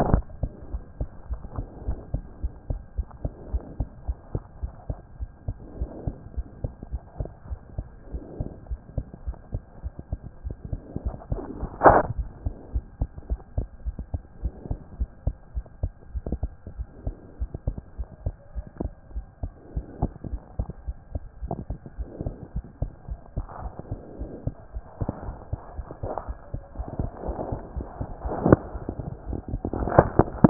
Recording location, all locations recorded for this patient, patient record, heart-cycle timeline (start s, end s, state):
tricuspid valve (TV)
aortic valve (AV)+pulmonary valve (PV)+tricuspid valve (TV)+mitral valve (MV)
#Age: Child
#Sex: Female
#Height: 88.0 cm
#Weight: 13.1 kg
#Pregnancy status: False
#Murmur: Absent
#Murmur locations: nan
#Most audible location: nan
#Systolic murmur timing: nan
#Systolic murmur shape: nan
#Systolic murmur grading: nan
#Systolic murmur pitch: nan
#Systolic murmur quality: nan
#Diastolic murmur timing: nan
#Diastolic murmur shape: nan
#Diastolic murmur grading: nan
#Diastolic murmur pitch: nan
#Diastolic murmur quality: nan
#Outcome: Abnormal
#Campaign: 2014 screening campaign
0.00	0.20	S1
0.20	0.36	systole
0.36	0.50	S2
0.50	0.70	diastole
0.70	0.82	S1
0.82	0.98	systole
0.98	1.08	S2
1.08	1.28	diastole
1.28	1.42	S1
1.42	1.54	systole
1.54	1.68	S2
1.68	1.86	diastole
1.86	2.00	S1
2.00	2.10	systole
2.10	2.26	S2
2.26	2.42	diastole
2.42	2.52	S1
2.52	2.66	systole
2.66	2.82	S2
2.82	2.96	diastole
2.96	3.08	S1
3.08	3.22	systole
3.22	3.32	S2
3.32	3.52	diastole
3.52	3.66	S1
3.66	3.78	systole
3.78	3.88	S2
3.88	4.04	diastole
4.04	4.18	S1
4.18	4.34	systole
4.34	4.44	S2
4.44	4.60	diastole
4.60	4.74	S1
4.74	4.86	systole
4.86	4.98	S2
4.98	5.18	diastole
5.18	5.30	S1
5.30	5.46	systole
5.46	5.58	S2
5.58	5.78	diastole
5.78	5.90	S1
5.90	6.04	systole
6.04	6.14	S2
6.14	6.34	diastole
6.34	6.46	S1
6.46	6.60	systole
6.60	6.72	S2
6.72	6.92	diastole
6.92	7.02	S1
7.02	7.18	systole
7.18	7.30	S2
7.30	7.48	diastole
7.48	7.58	S1
7.58	7.74	systole
7.74	7.86	S2
7.86	8.10	diastole
8.10	8.22	S1
8.22	8.38	systole
8.38	8.52	S2
8.52	8.70	diastole
8.70	8.80	S1
8.80	8.94	systole
8.94	9.06	S2
9.06	9.26	diastole
9.26	9.36	S1
9.36	9.52	systole
9.52	9.62	S2
9.62	9.84	diastole
9.84	9.92	S1
9.92	10.08	systole
10.08	10.20	S2
10.20	10.44	diastole
10.44	10.56	S1
10.56	10.70	systole
10.70	10.84	S2
10.84	11.04	diastole
11.04	11.18	S1
11.18	11.30	systole
11.30	11.44	S2
11.44	11.60	diastole
11.60	11.70	S1
11.70	11.86	systole
11.86	12.02	S2
12.02	12.16	diastole
12.16	12.30	S1
12.30	12.44	systole
12.44	12.58	S2
12.58	12.74	diastole
12.74	12.84	S1
12.84	13.00	systole
13.00	13.10	S2
13.10	13.30	diastole
13.30	13.40	S1
13.40	13.56	systole
13.56	13.70	S2
13.70	13.86	diastole
13.86	13.96	S1
13.96	14.12	systole
14.12	14.22	S2
14.22	14.42	diastole
14.42	14.54	S1
14.54	14.68	systole
14.68	14.78	S2
14.78	14.98	diastole
14.98	15.10	S1
15.10	15.24	systole
15.24	15.34	S2
15.34	15.54	diastole
15.54	15.64	S1
15.64	15.82	systole
15.82	15.94	S2
15.94	16.14	diastole
16.14	16.24	S1
16.24	16.44	systole
16.44	16.56	S2
16.56	16.78	diastole
16.78	16.88	S1
16.88	17.04	systole
17.04	17.16	S2
17.16	17.40	diastole
17.40	17.50	S1
17.50	17.68	systole
17.68	17.82	S2
17.82	17.98	diastole
17.98	18.08	S1
18.08	18.24	systole
18.24	18.36	S2
18.36	18.56	diastole
18.56	18.66	S1
18.66	18.80	systole
18.80	18.94	S2
18.94	19.14	diastole
19.14	19.26	S1
19.26	19.42	systole
19.42	19.52	S2
19.52	19.74	diastole
19.74	19.86	S1
19.86	20.00	systole
20.00	20.12	S2
20.12	20.30	diastole
20.30	20.42	S1
20.42	20.56	systole
20.56	20.68	S2
20.68	20.86	diastole
20.86	20.96	S1
20.96	21.14	systole
21.14	21.24	S2
21.24	21.42	diastole
21.42	21.52	S1
21.52	21.68	systole
21.68	21.80	S2
21.80	21.98	diastole
21.98	22.08	S1
22.08	22.20	systole
22.20	22.36	S2
22.36	22.56	diastole
22.56	22.66	S1
22.66	22.80	systole
22.80	22.92	S2
22.92	23.10	diastole
23.10	23.20	S1
23.20	23.36	systole
23.36	23.48	S2
23.48	23.64	diastole
23.64	23.74	S1
23.74	23.90	systole
23.90	24.02	S2
24.02	24.20	diastole
24.20	24.30	S1
24.30	24.46	systole
24.46	24.56	S2
24.56	24.74	diastole
24.74	24.84	S1
24.84	25.00	systole
25.00	25.10	S2
25.10	25.26	diastole
25.26	25.36	S1
25.36	25.52	systole
25.52	25.62	S2
25.62	25.78	diastole
25.78	25.88	S1
25.88	26.02	systole
26.02	26.10	S2
26.10	26.28	diastole
26.28	26.38	S1
26.38	26.54	systole
26.54	26.62	S2
26.62	26.78	diastole
26.78	26.88	S1
26.88	26.98	systole
26.98	27.10	S2
27.10	27.24	diastole
27.24	27.38	S1
27.38	27.50	systole
27.50	27.60	S2
27.60	27.76	diastole
27.76	27.90	S1
27.90	28.08	systole
28.08	28.20	S2
28.20	28.42	diastole
28.42	28.60	S1
28.60	28.74	systole
28.74	28.84	S2
28.84	29.00	diastole
29.00	29.16	S1
29.16	29.28	systole
29.28	29.38	S2
29.38	29.52	diastole
29.52	29.62	S1
29.62	29.78	systole
29.78	29.94	S2
29.94	30.14	diastole
30.14	30.28	S1
30.28	30.38	systole
30.38	30.50	S2